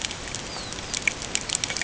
{"label": "ambient", "recorder": "HydroMoth"}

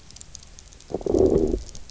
{"label": "biophony, low growl", "recorder": "SoundTrap 300"}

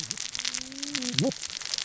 {"label": "biophony, cascading saw", "recorder": "SoundTrap 600 or HydroMoth"}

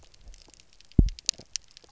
{"label": "biophony, double pulse", "recorder": "SoundTrap 300"}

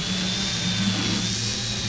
{"label": "anthrophony, boat engine", "recorder": "SoundTrap 500"}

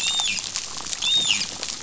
{"label": "biophony, dolphin", "recorder": "SoundTrap 500"}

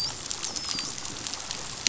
{"label": "biophony, dolphin", "recorder": "SoundTrap 500"}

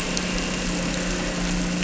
{"label": "anthrophony, boat engine", "recorder": "SoundTrap 300"}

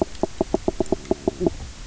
{"label": "biophony, knock croak", "recorder": "SoundTrap 300"}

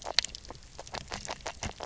{"label": "biophony, knock croak", "recorder": "SoundTrap 300"}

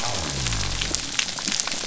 {"label": "biophony", "recorder": "SoundTrap 300"}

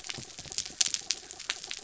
{"label": "anthrophony, mechanical", "recorder": "SoundTrap 300"}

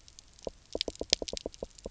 {"label": "biophony, knock", "recorder": "SoundTrap 300"}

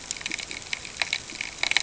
{"label": "ambient", "recorder": "HydroMoth"}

